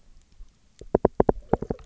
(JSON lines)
{"label": "biophony, knock", "recorder": "SoundTrap 300"}